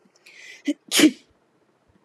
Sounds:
Sneeze